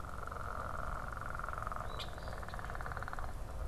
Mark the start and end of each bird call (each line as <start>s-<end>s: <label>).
1.7s-2.4s: Eastern Phoebe (Sayornis phoebe)
1.9s-2.2s: unidentified bird